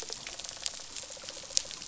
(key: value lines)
label: biophony, rattle response
recorder: SoundTrap 500